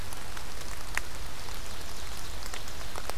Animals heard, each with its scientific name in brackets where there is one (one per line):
Ovenbird (Seiurus aurocapilla)